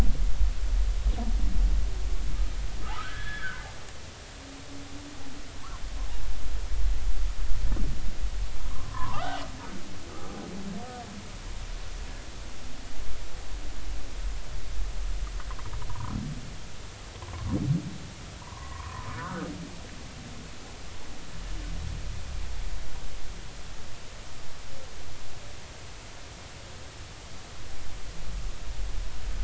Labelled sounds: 2.8	3.6	humpback whale, 1.2 to 3.5 kHz
8.7	9.5	humpback whale, 0.80 to 3.2 kHz
15.9	16.2	humpback whale, 0.90 to 1.4 kHz
18.4	19.5	humpback whale, 0.90 to 1.7 kHz

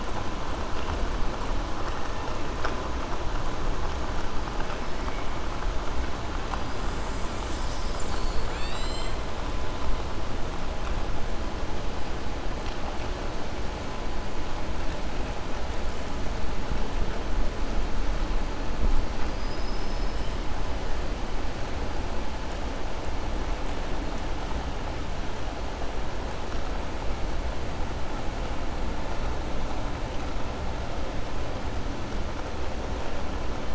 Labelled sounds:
19.2	20.3	killer whale, southern resident, 4.4 to 5.3 kHz

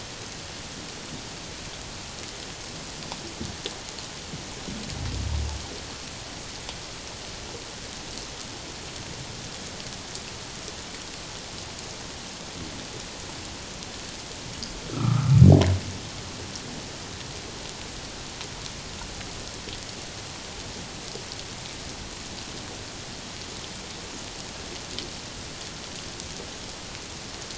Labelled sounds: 14.9	15.4	humpback whale, 1.1 to 1.4 kHz

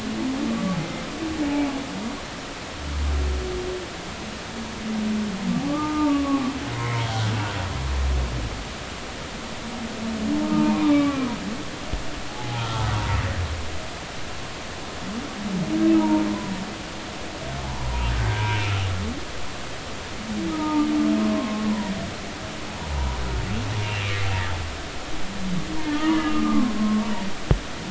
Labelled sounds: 1.4	1.7	humpback whale, 2.2 to 2.4 kHz
5.7	7.1	humpback whale, 0.83 to 2.3 kHz
10.4	11.2	humpback whale, 0.86 to 2.4 kHz
12.3	12.9	humpback whale, 0.80 to 1.4 kHz
16.0	16.2	humpback whale, 0.83 to 0.99 kHz
17.6	18.1	humpback whale, 0.80 to 1.1 kHz
20.5	21.9	humpback whale, 0.86 to 1.3 kHz
24.0	24.3	humpback whale, 2.0 to 2.5 kHz
25.9	27.1	humpback whale, 0.99 to 1.3 kHz

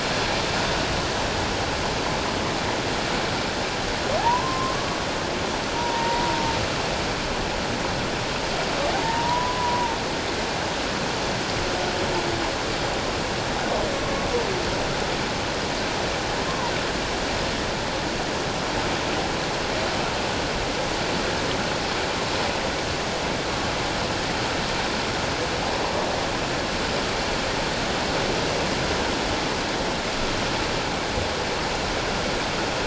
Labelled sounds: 4.2	4.8	humpback whale, 0.78 to 1.1 kHz
5.7	6.4	humpback whale, 0.88 to 2.0 kHz
9.0	10.0	humpback whale, 0.84 to 1.1 kHz
16.5	16.7	humpback whale, 0.88 to 1.2 kHz

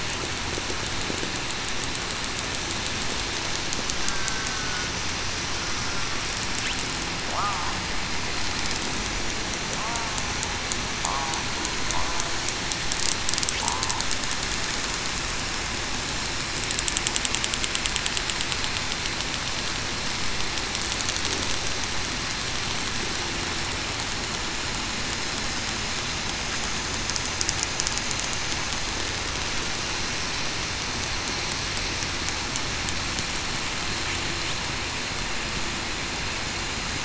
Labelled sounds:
4.1	4.9	killer whale, southern resident, 1.4 to 1.6 kHz

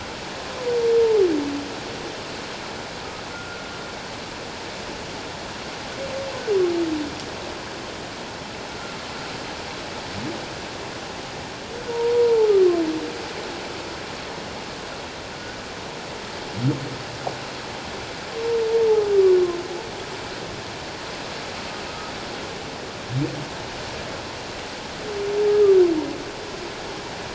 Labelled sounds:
3.3	3.7	humpback whale, 1.3 to 1.5 kHz
11.9	12.5	humpback whale, 0.81 to 1.0 kHz

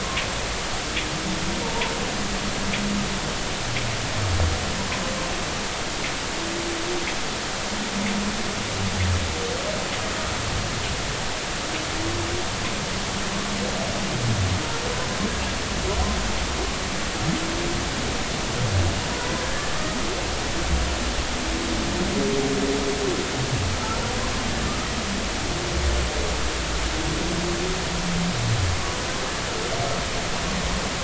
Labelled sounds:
1.6	1.9	humpback whale, 0.86 to 1.1 kHz
19.5	20.0	humpback whale, 1.2 to 1.8 kHz

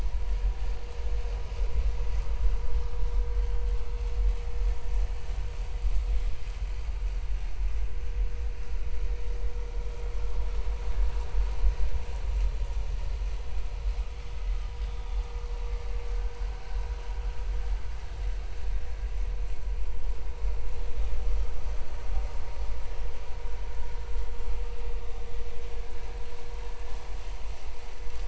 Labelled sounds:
8.6	8.9	vessel noise, 1.3 to 1.4 kHz

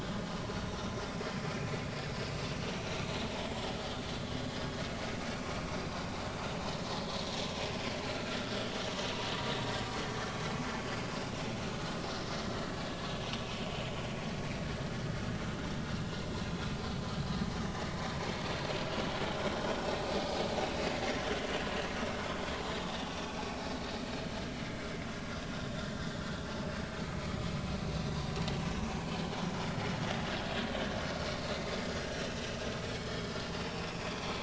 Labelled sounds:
1.4	1.7	vessel noise, 2.2 to 2.5 kHz
2.7	3.0	vessel noise, 3.7 to 4.0 kHz
10.8	11.1	vessel noise, 4.8 to 4.9 kHz
19.7	20.0	vessel noise, 5.4 to 5.7 kHz
29.1	29.3	vessel noise, 2.9 to 3.2 kHz
33.0	33.3	vessel noise, 5.0 to 5.2 kHz
34.0	34.3	vessel noise, 3.3 to 3.5 kHz

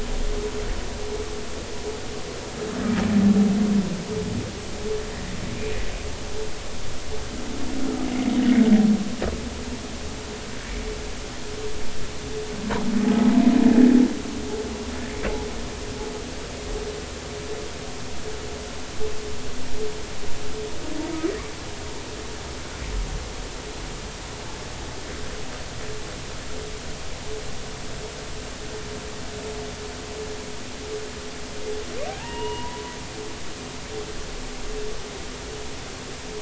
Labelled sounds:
8.4	8.6	humpback whale, 1.8 to 2.0 kHz
32.1	32.8	humpback whale, 0.80 to 2.9 kHz

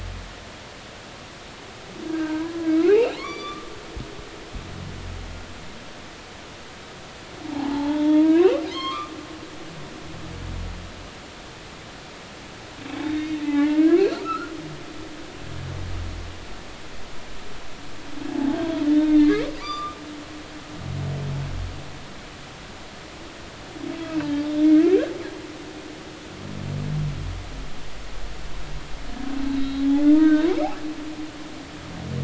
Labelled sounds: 2.0	3.7	humpback whale, 0.99 to 4.7 kHz
7.5	9.1	humpback whale, 0.80 to 4.4 kHz
13.0	14.5	humpback whale, 0.80 to 4.5 kHz
18.3	18.6	humpback whale, 0.80 to 0.90 kHz
19.1	20.0	humpback whale, 1.1 to 3.7 kHz
29.5	30.5	humpback whale, 1.2 to 4.2 kHz

